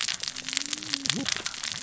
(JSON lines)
{"label": "biophony, cascading saw", "recorder": "SoundTrap 600 or HydroMoth"}